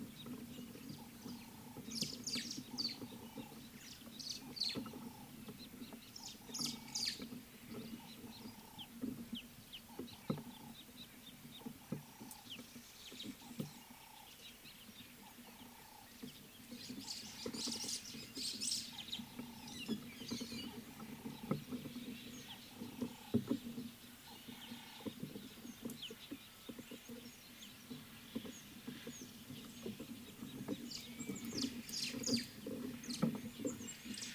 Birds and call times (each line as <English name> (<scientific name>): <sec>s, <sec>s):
Ring-necked Dove (Streptopelia capicola): 1.5s, 8.5s, 14.0s
Rüppell's Starling (Lamprotornis purpuroptera): 2.4s, 6.7s, 32.0s
Scarlet-chested Sunbird (Chalcomitra senegalensis): 9.3s, 11.0s
White-browed Sparrow-Weaver (Plocepasser mahali): 17.9s
White-headed Buffalo-Weaver (Dinemellia dinemelli): 20.4s